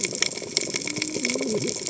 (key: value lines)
label: biophony, cascading saw
recorder: HydroMoth